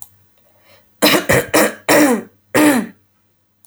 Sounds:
Throat clearing